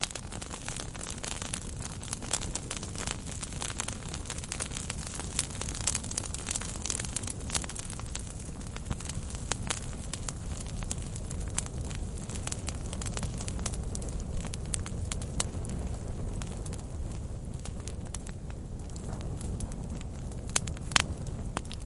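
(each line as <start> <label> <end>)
0.0 Fire crackling steadily. 21.9
0.0 The wind becomes increasingly louder. 21.9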